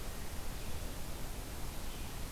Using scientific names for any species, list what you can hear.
forest ambience